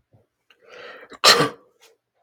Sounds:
Sneeze